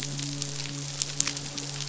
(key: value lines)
label: biophony, midshipman
recorder: SoundTrap 500